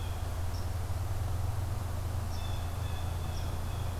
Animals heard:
Blue Jay (Cyanocitta cristata), Red Squirrel (Tamiasciurus hudsonicus)

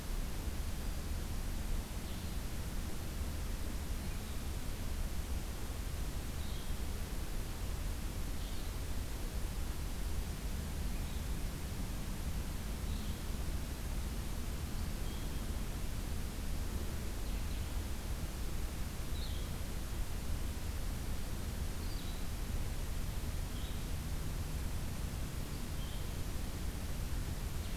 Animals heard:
Blue-headed Vireo (Vireo solitarius)

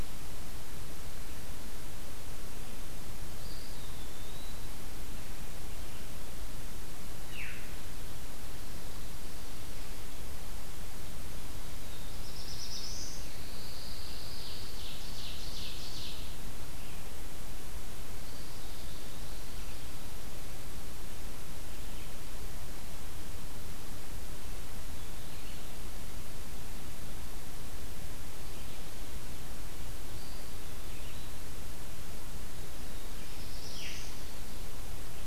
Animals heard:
Veery (Catharus fuscescens), Ovenbird (Seiurus aurocapilla), Black-throated Blue Warbler (Setophaga caerulescens), Pine Warbler (Setophaga pinus), Eastern Wood-Pewee (Contopus virens)

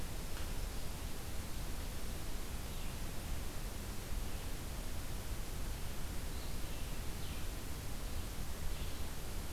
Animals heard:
Blue-headed Vireo (Vireo solitarius), Black-throated Green Warbler (Setophaga virens)

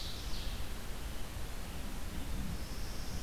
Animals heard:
Red-eyed Vireo (Vireo olivaceus), Ovenbird (Seiurus aurocapilla), Northern Parula (Setophaga americana)

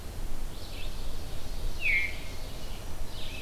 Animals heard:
Veery (Catharus fuscescens), Ovenbird (Seiurus aurocapilla), Red-eyed Vireo (Vireo olivaceus)

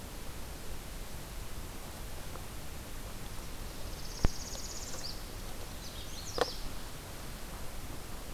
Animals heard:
Northern Parula (Setophaga americana), Magnolia Warbler (Setophaga magnolia)

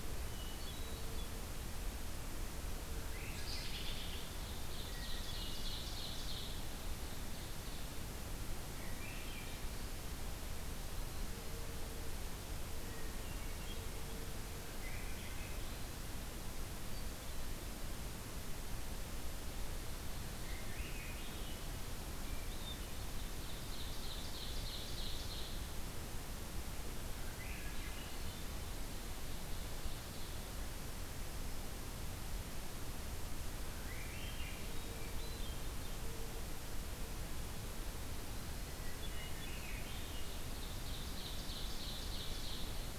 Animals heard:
Hermit Thrush (Catharus guttatus), Ovenbird (Seiurus aurocapilla), Swainson's Thrush (Catharus ustulatus)

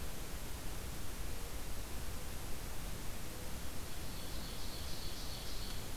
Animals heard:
Ovenbird (Seiurus aurocapilla)

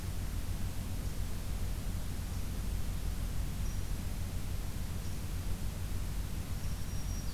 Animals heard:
Black-throated Green Warbler (Setophaga virens), Red Squirrel (Tamiasciurus hudsonicus)

